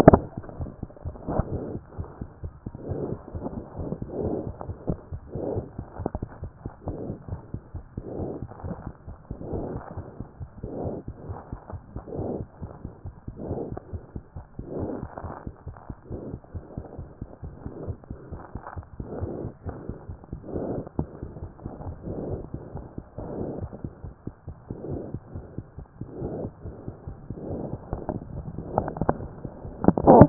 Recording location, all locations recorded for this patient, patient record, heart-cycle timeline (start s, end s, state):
aortic valve (AV)
aortic valve (AV)+mitral valve (MV)
#Age: Child
#Sex: Female
#Height: 75.0 cm
#Weight: 10.2 kg
#Pregnancy status: False
#Murmur: Absent
#Murmur locations: nan
#Most audible location: nan
#Systolic murmur timing: nan
#Systolic murmur shape: nan
#Systolic murmur grading: nan
#Systolic murmur pitch: nan
#Systolic murmur quality: nan
#Diastolic murmur timing: nan
#Diastolic murmur shape: nan
#Diastolic murmur grading: nan
#Diastolic murmur pitch: nan
#Diastolic murmur quality: nan
#Outcome: Normal
#Campaign: 2014 screening campaign
0.00	6.42	unannotated
6.42	6.52	S1
6.52	6.64	systole
6.64	6.70	S2
6.70	6.88	diastole
6.88	6.98	S1
6.98	7.08	systole
7.08	7.16	S2
7.16	7.30	diastole
7.30	7.40	S1
7.40	7.52	systole
7.52	7.62	S2
7.62	7.76	diastole
7.76	7.84	S1
7.84	7.96	systole
7.96	8.04	S2
8.04	8.19	diastole
8.19	8.27	S1
8.27	8.40	systole
8.40	8.48	S2
8.48	8.64	diastole
8.64	8.72	S1
8.72	8.86	systole
8.86	8.94	S2
8.94	9.07	diastole
9.07	30.29	unannotated